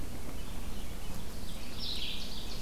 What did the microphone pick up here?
Red-eyed Vireo, Ovenbird